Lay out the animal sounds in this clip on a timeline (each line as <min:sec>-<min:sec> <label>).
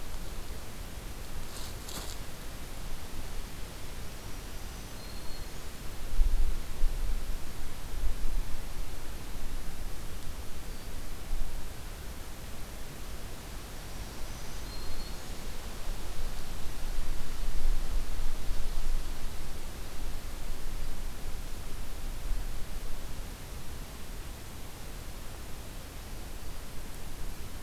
0:03.8-0:05.9 Black-throated Green Warbler (Setophaga virens)
0:13.4-0:15.6 Black-throated Green Warbler (Setophaga virens)